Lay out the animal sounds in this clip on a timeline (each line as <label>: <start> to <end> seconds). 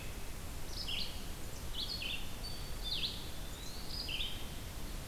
Red-eyed Vireo (Vireo olivaceus): 0.5 to 5.1 seconds
Hairy Woodpecker (Dryobates villosus): 2.3 to 2.7 seconds
Eastern Wood-Pewee (Contopus virens): 2.7 to 4.5 seconds